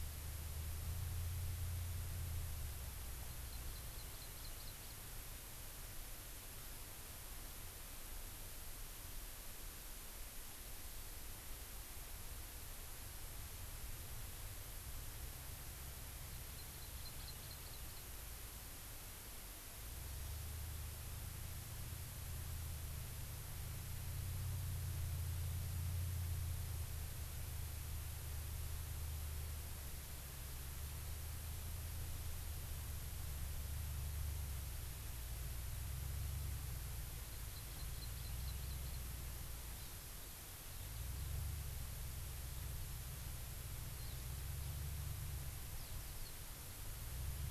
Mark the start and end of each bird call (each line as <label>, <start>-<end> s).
Hawaii Amakihi (Chlorodrepanis virens), 3.4-5.0 s
Hawaii Amakihi (Chlorodrepanis virens), 16.6-18.0 s
Hawaii Amakihi (Chlorodrepanis virens), 37.3-39.0 s
Hawaii Amakihi (Chlorodrepanis virens), 39.8-39.9 s
Eurasian Skylark (Alauda arvensis), 44.0-44.2 s
Eurasian Skylark (Alauda arvensis), 45.8-46.3 s